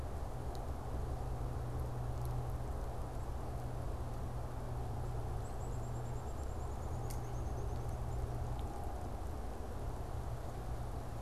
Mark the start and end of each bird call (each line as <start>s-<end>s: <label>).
5.3s-8.4s: Black-capped Chickadee (Poecile atricapillus)